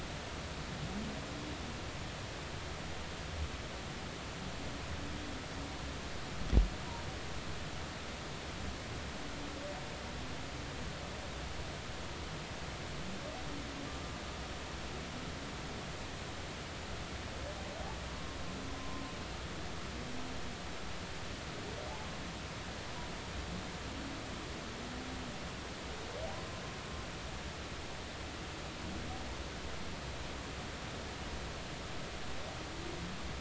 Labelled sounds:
18.8	19.0	humpback whale, 0.93 to 1.1 kHz

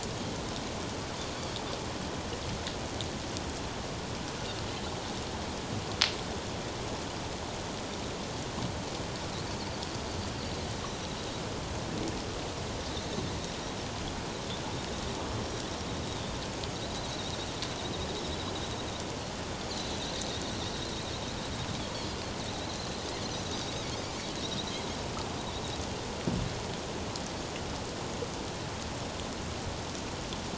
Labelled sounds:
17.1	17.5	Pacific white-sided dolphin, 3.6 to 4.1 kHz
21.9	22.2	Pacific white-sided dolphin, 4.2 to 4.6 kHz
24.4	24.7	Pacific white-sided dolphin, 3.7 to 4.2 kHz

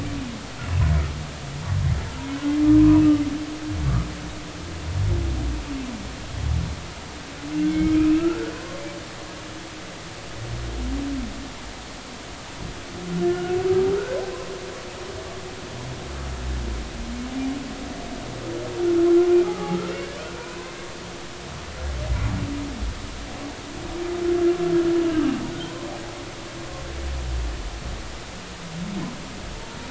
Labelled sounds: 7.5	8.8	humpback whale, 0.99 to 3.3 kHz
13.3	13.6	humpback whale, 1.4 to 1.5 kHz
14.0	14.3	humpback whale, 1.3 to 1.4 kHz
18.9	19.9	humpback whale, 0.80 to 1.5 kHz
25.1	25.8	humpback whale, 1.4 to 1.7 kHz

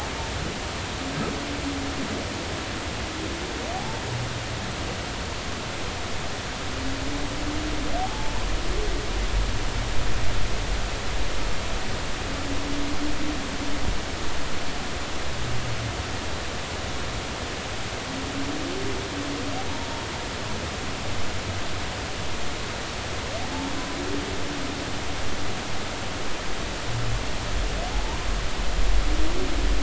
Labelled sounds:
3.7	4.0	humpback whale, 0.80 to 0.93 kHz
9.0	9.5	humpback whale, 0.80 to 1.1 kHz
27.9	28.2	humpback whale, 0.80 to 1.1 kHz

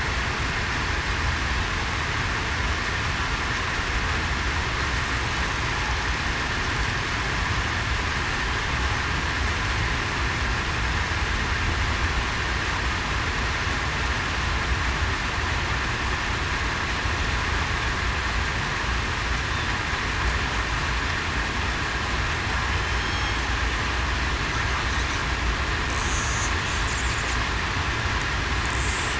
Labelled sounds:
22.8	23.4	killer whale, southern resident, 3.2 to 6.5 kHz

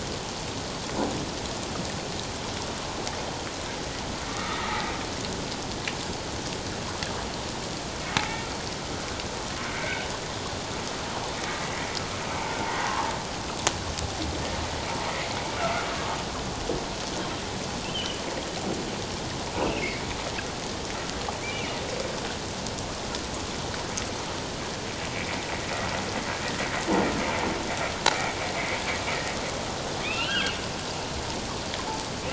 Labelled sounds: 4.3	4.9	humpback whale, 1.1 to 1.4 kHz
9.7	10.0	humpback whale, 1.4 to 2.3 kHz
15.6	15.9	humpback whale, 1.3 to 1.5 kHz
17.9	18.2	humpback whale, 2.8 to 3.2 kHz
19.5	20.0	humpback whale, 1.9 to 2.9 kHz
21.4	21.8	humpback whale, 2.1 to 2.9 kHz
25.1	25.5	humpback whale, 1.9 to 2.4 kHz
30.0	30.5	humpback whale, 1.3 to 3.4 kHz

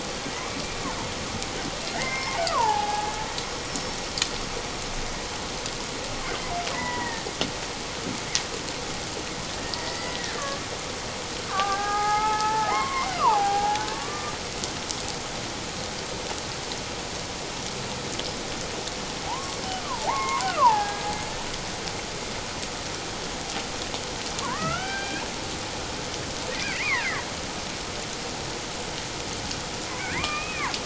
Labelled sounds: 1.9	3.1	killer whale, Bigg's (transient), 0.78 to 2.2 kHz
3.7	4.0	killer whale, Bigg's (transient), 5.3 to 5.8 kHz
6.7	7.3	killer whale, Bigg's (transient), 0.84 to 2.1 kHz
9.8	10.6	killer whale, Bigg's (transient), 1.1 to 4.9 kHz
11.5	14.3	killer whale, Bigg's (transient), 0.78 to 2.3 kHz
19.2	21.0	killer whale, Bigg's (transient), 0.78 to 2.4 kHz
24.4	25.3	killer whale, Bigg's (transient), 0.91 to 3.2 kHz
26.6	27.1	killer whale, Bigg's (transient), 1.5 to 2.5 kHz
30.0	30.7	killer whale, Bigg's (transient), 0.91 to 2.6 kHz

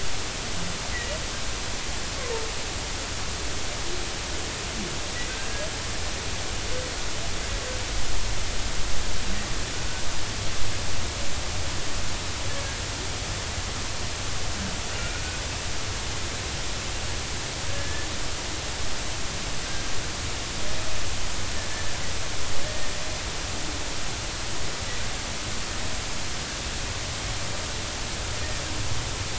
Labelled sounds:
17.7	18.1	humpback whale, 1.5 to 1.8 kHz
22.6	22.9	humpback whale, 1.7 to 1.9 kHz

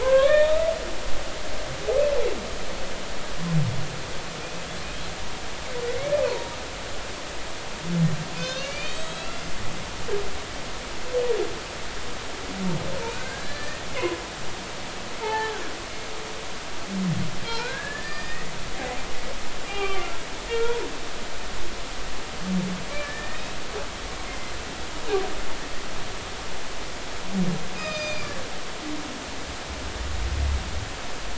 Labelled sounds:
0.0	1.6	humpback whale, 0.83 to 3.8 kHz
6.3	6.6	humpback whale, 0.90 to 1.1 kHz
8.3	9.3	humpback whale, 1.5 to 7.9 kHz
13.1	13.9	humpback whale, 1.4 to 2.0 kHz
15.2	15.6	humpback whale, 0.80 to 3.1 kHz
17.5	18.5	humpback whale, 1.3 to 4.9 kHz
19.7	20.1	humpback whale, 1.1 to 3.3 kHz
22.9	23.5	humpback whale, 1.7 to 2.6 kHz
24.3	24.5	humpback whale, 2.0 to 2.2 kHz
27.8	28.3	humpback whale, 1.8 to 6.4 kHz

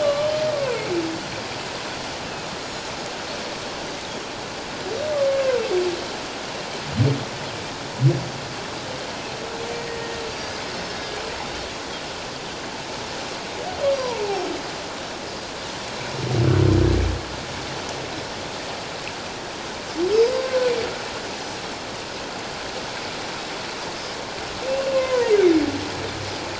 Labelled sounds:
2.6	2.9	Pacific white-sided dolphin, 6.8 to 6.9 kHz
5.1	5.4	humpback whale, 1.1 to 1.2 kHz
9.9	11.2	humpback whale, 1.6 to 1.9 kHz
14.0	14.2	humpback whale, 0.84 to 1.1 kHz
20.4	20.6	humpback whale, 5.5 to 5.8 kHz
20.4	20.7	Pacific white-sided dolphin, 1.4 to 1.6 kHz
21.3	21.6	Pacific white-sided dolphin, 5.8 to 6.1 kHz
24.9	25.3	humpback whale, 0.91 to 2.2 kHz

